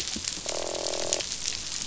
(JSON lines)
{"label": "biophony, croak", "recorder": "SoundTrap 500"}